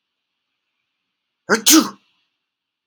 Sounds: Sneeze